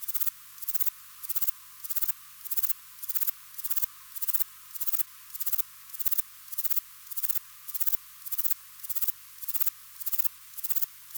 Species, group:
Platycleis albopunctata, Orthoptera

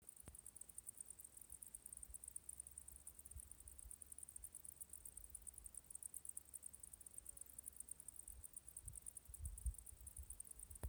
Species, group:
Decticus albifrons, Orthoptera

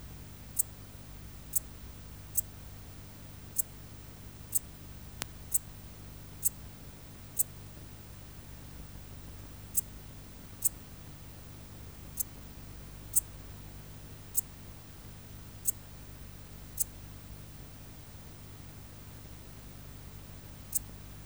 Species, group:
Eupholidoptera schmidti, Orthoptera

